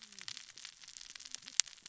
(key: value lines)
label: biophony, cascading saw
recorder: SoundTrap 600 or HydroMoth